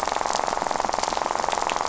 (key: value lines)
label: biophony, rattle
recorder: SoundTrap 500